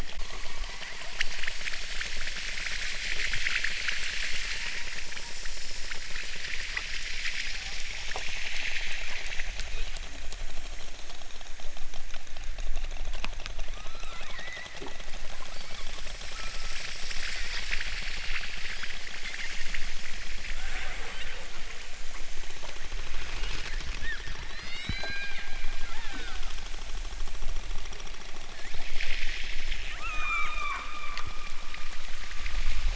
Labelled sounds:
9.5	10.1	killer whale, southern Alaska resident, 0.83 to 3.1 kHz
13.6	14.4	killer whale, southern Alaska resident, 0.74 to 4.5 kHz
15.5	16.0	killer whale, southern Alaska resident, 0.46 to 2.9 kHz
16.2	17.0	killer whale, southern Alaska resident, 0.69 to 1.9 kHz
20.5	21.0	killer whale, southern Alaska resident, 0.28 to 2.3 kHz
24.4	25.4	killer whale, southern Alaska resident, 0.69 to 8.0 kHz
25.9	26.4	killer whale, southern Alaska resident, 0.18 to 4.5 kHz
28.5	29.0	killer whale, southern Alaska resident, 1.2 to 4.0 kHz
30.0	31.0	killer whale, southern Alaska resident, 0.55 to 8.0 kHz

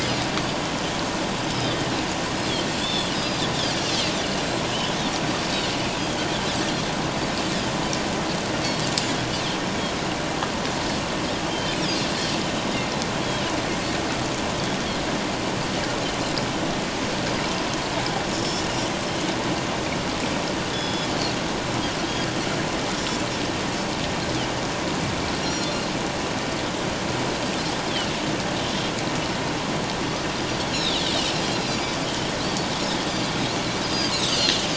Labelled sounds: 1.5	1.7	Pacific white-sided dolphin, 4.8 to 5.4 kHz
2.8	3.4	Pacific white-sided dolphin, 3.3 to 5.4 kHz
6.0	6.3	Pacific white-sided dolphin, 3.1 to 3.4 kHz
11.5	11.8	Pacific white-sided dolphin, 3.0 to 3.2 kHz
20.7	21.1	Pacific white-sided dolphin, 3.3 to 5.2 kHz
25.4	25.8	Pacific white-sided dolphin, 4.1 to 7.1 kHz
30.7	31.0	Pacific white-sided dolphin, 3.3 to 4.3 kHz
31.7	32.0	Pacific white-sided dolphin, 4.6 to 7.2 kHz
33.1	34.6	Pacific white-sided dolphin, 4.6 to 6.5 kHz

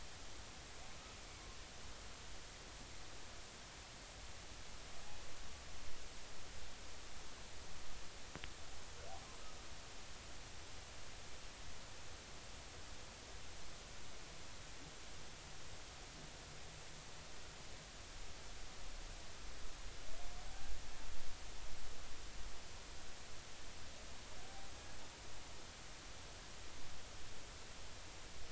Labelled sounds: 1.2	1.5	humpback whale, 2.1 to 2.3 kHz

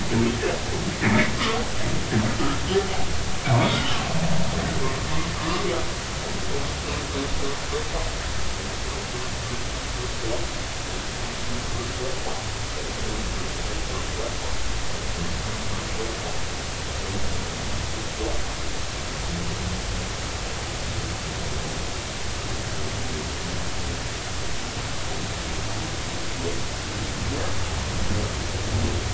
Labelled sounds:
1.0	1.3	humpback whale, 1.9 to 2.5 kHz
3.6	3.9	humpback whale, 3.2 to 3.6 kHz

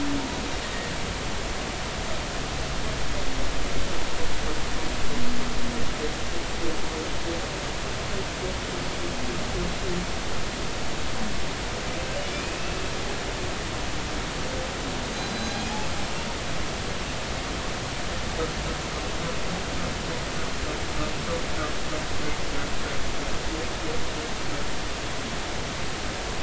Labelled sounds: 12.2	12.6	humpback whale, 2.3 to 3.0 kHz
15.1	15.8	humpback whale, 3.9 to 6.8 kHz

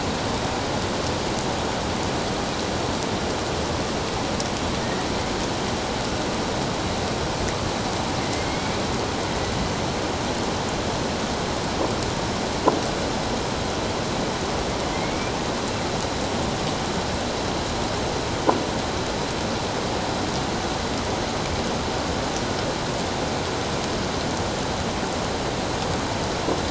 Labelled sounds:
8.5	8.8	killer whale, northern resident, A clan, 2.1 to 2.4 kHz
14.9	15.3	killer whale, northern resident, A clan, 2.0 to 2.4 kHz

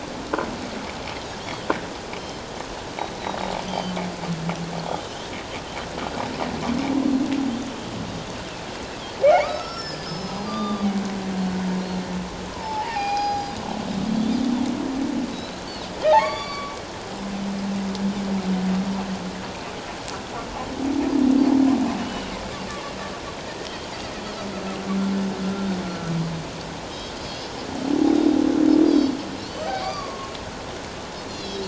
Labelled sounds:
1.4	1.7	Pacific white-sided dolphin, 3.0 to 3.4 kHz
2.2	2.4	Pacific white-sided dolphin, 4.1 to 4.3 kHz
3.6	4.0	Pacific white-sided dolphin, 3.0 to 4.8 kHz
4.9	5.3	Pacific white-sided dolphin, 2.8 to 3.6 kHz
9.2	10.7	humpback whale, 1.1 to 5.5 kHz
9.5	9.8	Pacific white-sided dolphin, 4.6 to 4.8 kHz
10.5	10.9	Pacific white-sided dolphin, 1.1 to 3.7 kHz
11.8	12.0	Pacific white-sided dolphin, 4.0 to 4.4 kHz
12.5	13.6	humpback whale, 0.78 to 5.0 kHz
15.3	15.6	Pacific white-sided dolphin, 3.8 to 4.2 kHz
16.0	16.7	humpback whale, 0.78 to 7.0 kHz
22.0	22.3	Pacific white-sided dolphin, 2.7 to 3.0 kHz
24.2	24.5	Pacific white-sided dolphin, 3.8 to 4.7 kHz
27.2	27.5	Pacific white-sided dolphin, 4.3 to 5.3 kHz
28.0	28.4	Pacific white-sided dolphin, 3.6 to 3.8 kHz
28.8	30.1	Pacific white-sided dolphin, 2.9 to 6.3 kHz
29.7	30.3	humpback whale, 0.78 to 1.2 kHz
31.3	31.6	Pacific white-sided dolphin, 3.2 to 5.8 kHz

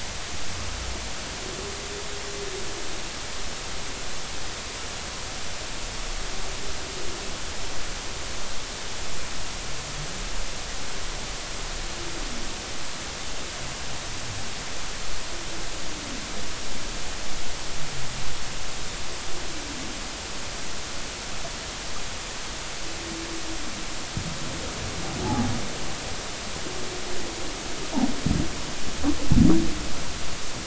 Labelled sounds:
25.2	25.5	humpback whale, 0.80 to 0.90 kHz

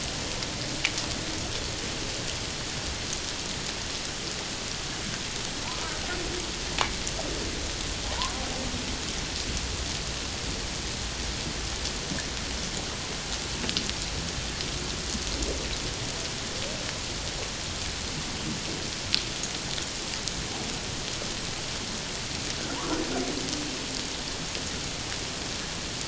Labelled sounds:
8.0	8.3	humpback whale, 0.78 to 1.1 kHz
22.8	23.0	humpback whale, 0.88 to 1.5 kHz

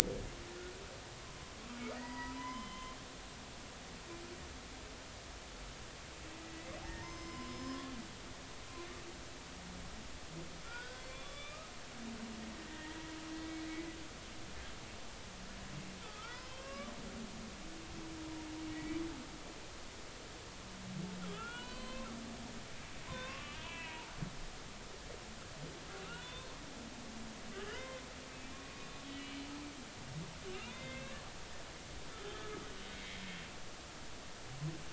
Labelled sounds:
2.0	3.0	humpback whale, 0.90 to 3.2 kHz
6.4	7.9	humpback whale, 0.80 to 5.2 kHz
10.6	11.7	humpback whale, 1.0 to 3.7 kHz
12.7	13.1	humpback whale, 1.8 to 2.0 kHz
16.0	16.9	humpback whale, 1.1 to 5.3 kHz
18.7	19.0	humpback whale, 1.9 to 2.4 kHz
21.3	22.1	humpback whale, 0.93 to 4.2 kHz
23.1	24.1	humpback whale, 0.86 to 3.0 kHz
26.1	26.5	humpback whale, 0.96 to 3.7 kHz
27.5	28.9	humpback whale, 0.93 to 2.5 kHz
29.1	29.4	humpback whale, 2.2 to 2.4 kHz
30.6	31.1	humpback whale, 1.5 to 2.6 kHz
32.3	32.5	humpback whale, 3.4 to 3.6 kHz
32.9	33.2	humpback whale, 1.8 to 2.3 kHz

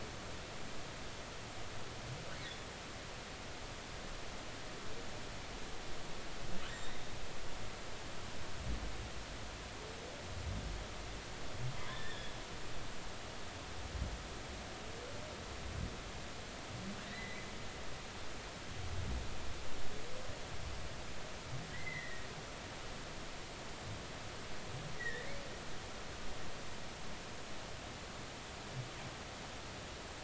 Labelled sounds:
6.7	7.1	humpback whale, 3.6 to 3.8 kHz
11.8	12.3	humpback whale, 0.93 to 3.7 kHz
17.1	17.5	humpback whale, 1.8 to 2.1 kHz
21.7	22.2	humpback whale, 1.8 to 2.1 kHz
25.0	25.3	humpback whale, 1.7 to 2.0 kHz

